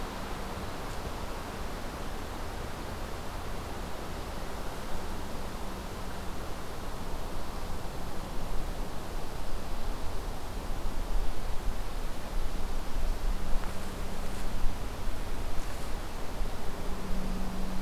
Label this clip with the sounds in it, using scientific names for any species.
forest ambience